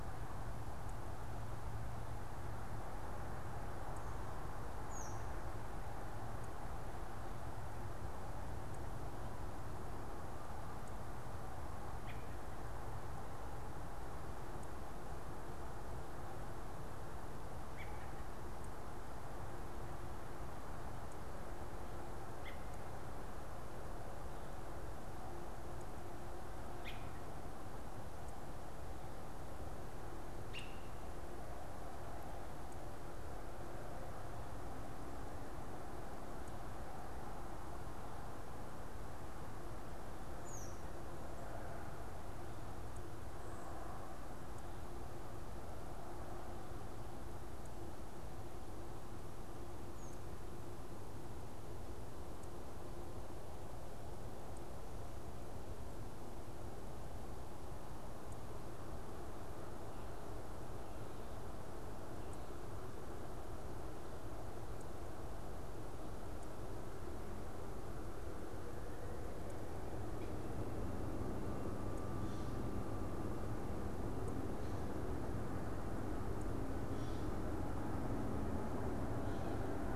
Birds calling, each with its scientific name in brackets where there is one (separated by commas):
American Robin (Turdus migratorius), unidentified bird